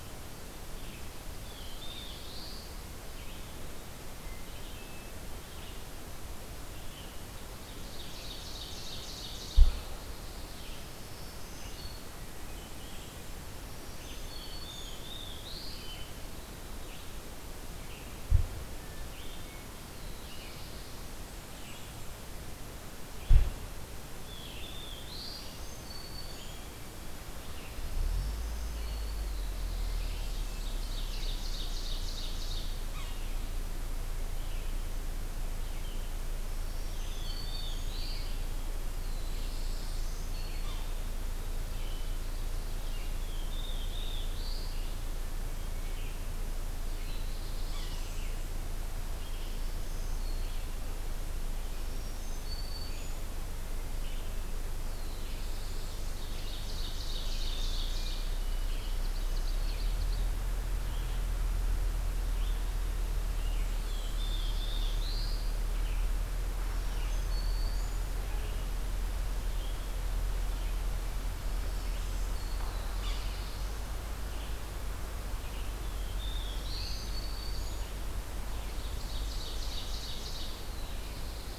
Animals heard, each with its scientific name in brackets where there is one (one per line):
Red-eyed Vireo (Vireo olivaceus)
Blackburnian Warbler (Setophaga fusca)
Hermit Thrush (Catharus guttatus)
Ovenbird (Seiurus aurocapilla)
Black-and-white Warbler (Mniotilta varia)
Black-throated Blue Warbler (Setophaga caerulescens)
Black-throated Green Warbler (Setophaga virens)
Yellow-bellied Sapsucker (Sphyrapicus varius)